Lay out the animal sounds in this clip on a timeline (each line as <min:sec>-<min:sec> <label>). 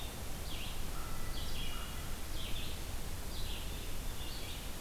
0:00.2-0:04.8 Red-eyed Vireo (Vireo olivaceus)
0:00.9-0:01.9 American Crow (Corvus brachyrhynchos)
0:01.4-0:02.1 Hermit Thrush (Catharus guttatus)